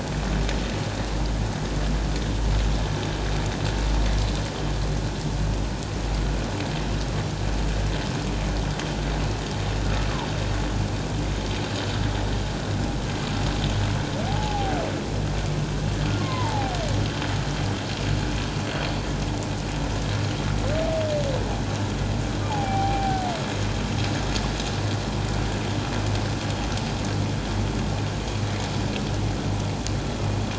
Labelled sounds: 14.3	14.8	humpback whale, 0.78 to 0.91 kHz
16.2	16.8	humpback whale, 0.78 to 2.2 kHz
22.5	23.2	humpback whale, 0.78 to 2.4 kHz

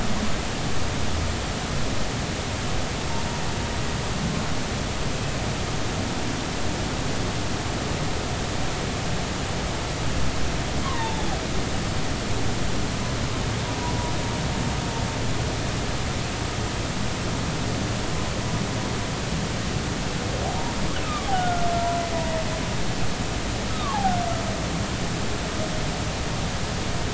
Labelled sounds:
10.8	11.3	humpback whale, 0.80 to 4.0 kHz
21.3	21.7	humpback whale, 1.3 to 1.5 kHz
23.7	24.0	humpback whale, 1.0 to 1.3 kHz

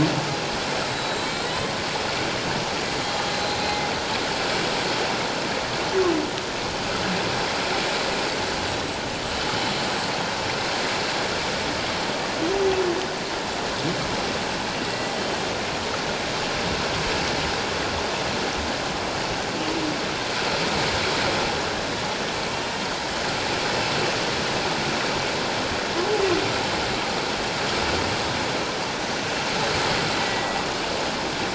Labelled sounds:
1.2	1.7	humpback whale, 3.6 to 4.2 kHz
2.8	3.6	humpback whale, 3.9 to 7.0 kHz
14.9	15.2	humpback whale, 1.9 to 2.0 kHz
30.2	30.6	humpback whale, 1.9 to 2.0 kHz

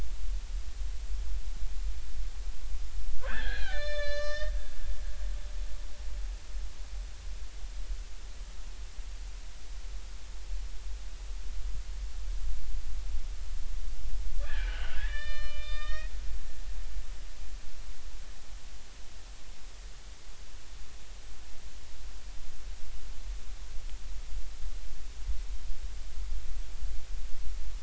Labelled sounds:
3.2	4.5	killer whale, Bigg's (transient), 1.1 to 6.6 kHz
14.4	16.1	killer whale, Bigg's (transient), 1.1 to 5.4 kHz

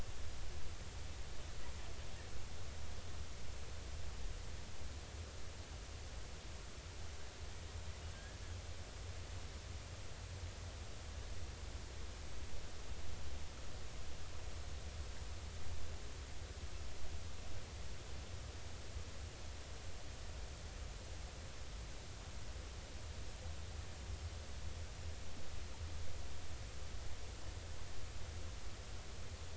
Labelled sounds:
8.1	8.4	killer whale, 1.5 to 1.8 kHz

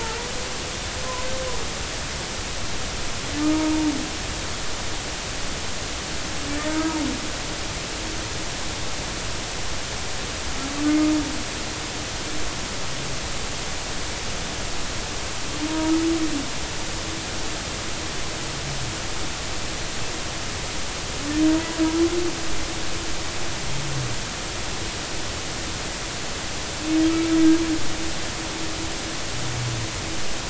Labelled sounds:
0.0	0.3	humpback whale, 0.83 to 1.0 kHz
3.5	3.9	humpback whale, 0.86 to 0.99 kHz
6.7	6.9	humpback whale, 1.5 to 1.7 kHz
15.7	15.9	humpback whale, 0.90 to 0.99 kHz

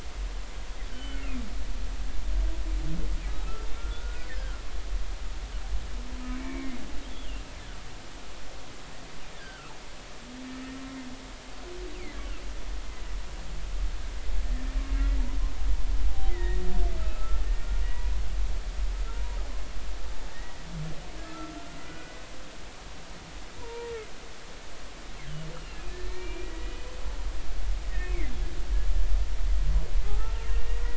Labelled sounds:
0.9	1.2	humpback whale, 2.9 to 3.1 kHz
3.4	4.5	humpback whale, 1.2 to 2.2 kHz
6.4	7.4	humpback whale, 1.0 to 3.5 kHz
9.4	9.7	humpback whale, 1.1 to 1.7 kHz
16.3	16.6	humpback whale, 1.7 to 3.8 kHz
17.1	17.4	humpback whale, 1.2 to 1.4 kHz
17.8	18.1	humpback whale, 1.9 to 2.0 kHz
19.1	19.4	humpback whale, 0.90 to 1.0 kHz
21.2	22.2	humpback whale, 1.2 to 1.5 kHz
23.6	23.9	humpback whale, 0.90 to 1.1 kHz
25.5	26.9	humpback whale, 1.7 to 4.2 kHz
27.9	28.4	humpback whale, 1.7 to 2.6 kHz
30.0	30.8	humpback whale, 1.2 to 2.0 kHz

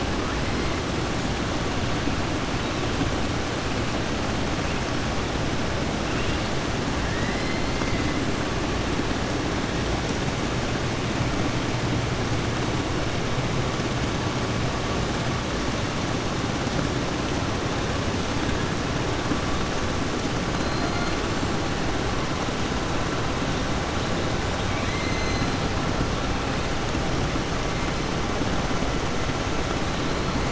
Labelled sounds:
7.0	7.7	killer whale, southern resident, 1.7 to 5.2 kHz
20.6	21.1	killer whale, southern resident, 3.5 to 4.3 kHz
24.6	25.5	killer whale, southern resident, 1.8 to 4.9 kHz

